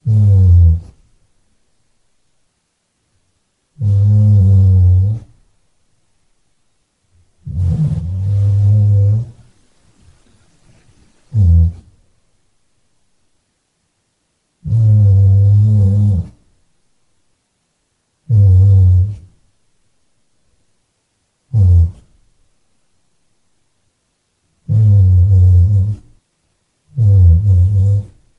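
Dog snoring steadily. 0.0 - 1.0
Dog snoring steadily. 3.8 - 5.3
A dog snores steadily with irregular rhythm. 7.5 - 9.4
A dog snores briefly. 11.3 - 11.8
Dog snoring steadily. 14.6 - 16.4
Dog snoring steadily. 18.3 - 19.3
A dog snores briefly. 21.5 - 22.1
Dog snoring steadily. 24.7 - 26.1
An irregular snoring sound from a dog. 27.0 - 28.1

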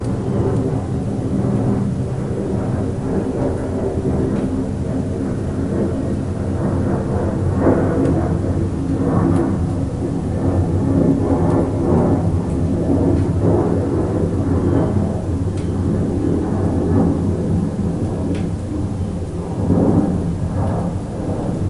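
A deep, continuous humming of an airplane flying by. 0.0 - 21.7

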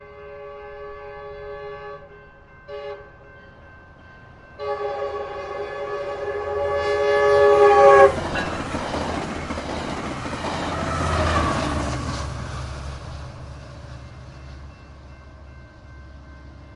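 A distant train crossing bell is ringing. 0.0 - 5.0
A train horn sounds in the distance and gradually gets louder. 0.0 - 8.2
A train passes by, creating a rhythmic clunking sound as its wheels move over track joints. 8.2 - 12.4
Wind gusts trail behind a passing train. 10.6 - 16.8
A train crossing bell rings in the distance. 13.5 - 16.8

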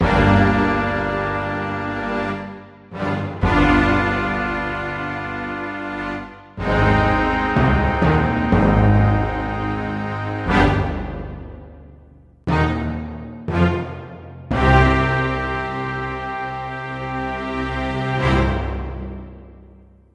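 An orchestral ensemble plays short, segmented bursts of music. 0.0 - 20.1
An orchestral burst begins abruptly and fades immediately. 0.0 - 11.8
An orchestral burst begins abruptly and fades immediately. 12.5 - 19.5

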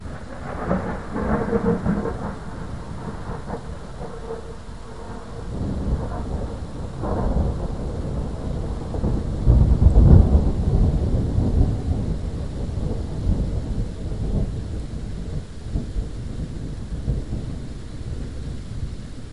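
Rain falling constantly in the background. 0.1 - 19.3
The sound of a lightning bolt in the distance. 0.6 - 17.2

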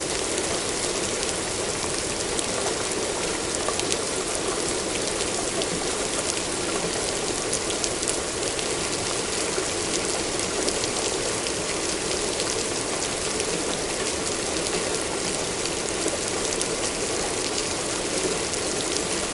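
Rainfall with raindrops hitting a surface. 0.0 - 19.3

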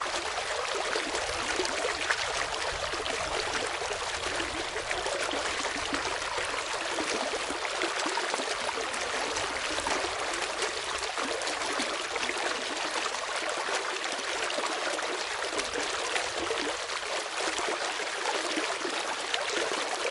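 The sound of a flowing water stream. 0.0 - 20.1

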